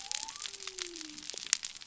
{"label": "biophony", "recorder": "SoundTrap 300"}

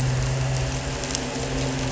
{"label": "anthrophony, boat engine", "recorder": "SoundTrap 300"}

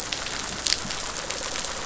{"label": "biophony, rattle response", "recorder": "SoundTrap 500"}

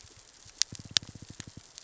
{"label": "biophony, knock", "recorder": "SoundTrap 600 or HydroMoth"}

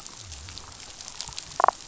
{"label": "biophony, damselfish", "recorder": "SoundTrap 500"}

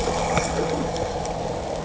{"label": "anthrophony, boat engine", "recorder": "HydroMoth"}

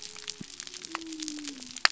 {"label": "biophony", "recorder": "SoundTrap 300"}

